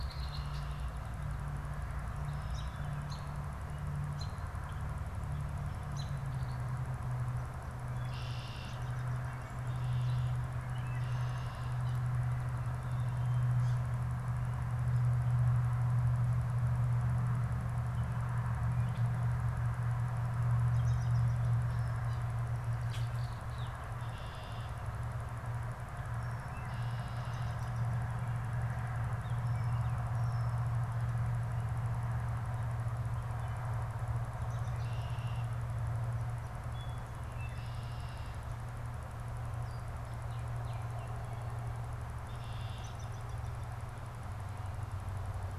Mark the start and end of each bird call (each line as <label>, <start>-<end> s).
Red-winged Blackbird (Agelaius phoeniceus), 0.0-1.0 s
American Robin (Turdus migratorius), 2.4-6.2 s
American Robin (Turdus migratorius), 7.6-12.0 s
American Robin (Turdus migratorius), 20.4-21.7 s
Red-winged Blackbird (Agelaius phoeniceus), 23.8-24.9 s
Red-winged Blackbird (Agelaius phoeniceus), 26.3-27.6 s
American Robin (Turdus migratorius), 27.1-28.1 s
Red-winged Blackbird (Agelaius phoeniceus), 34.4-35.5 s
Baltimore Oriole (Icterus galbula), 40.1-41.6 s
Red-winged Blackbird (Agelaius phoeniceus), 42.1-42.9 s
American Robin (Turdus migratorius), 42.5-44.1 s